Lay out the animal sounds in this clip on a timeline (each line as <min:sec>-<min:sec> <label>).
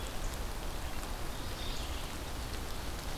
0:01.2-0:02.1 Mourning Warbler (Geothlypis philadelphia)